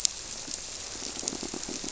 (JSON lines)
{"label": "biophony, squirrelfish (Holocentrus)", "recorder": "SoundTrap 300"}